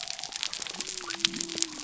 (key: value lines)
label: biophony
recorder: SoundTrap 300